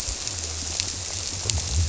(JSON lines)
{"label": "biophony", "recorder": "SoundTrap 300"}